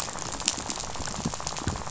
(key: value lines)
label: biophony, rattle
recorder: SoundTrap 500